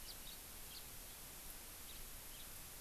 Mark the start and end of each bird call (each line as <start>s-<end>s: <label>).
0.0s-0.4s: House Finch (Haemorhous mexicanus)
0.7s-0.8s: House Finch (Haemorhous mexicanus)
1.9s-2.0s: House Finch (Haemorhous mexicanus)
2.3s-2.5s: House Finch (Haemorhous mexicanus)